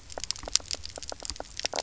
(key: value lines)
label: biophony, knock croak
recorder: SoundTrap 300